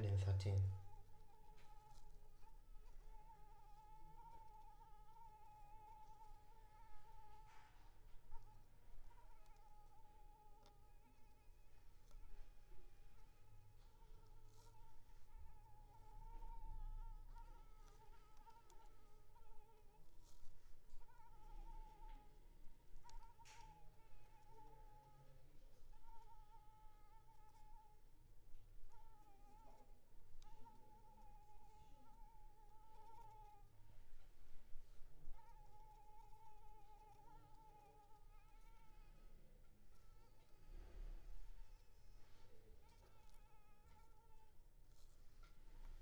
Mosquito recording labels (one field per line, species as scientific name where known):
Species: Anopheles arabiensis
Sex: female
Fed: unfed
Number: one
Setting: cup